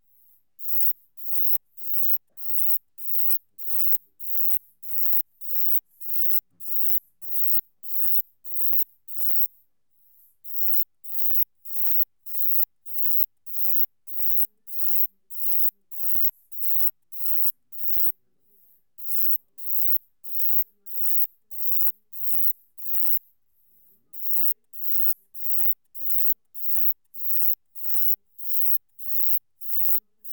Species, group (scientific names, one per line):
Uromenus brevicollis
Orthoptera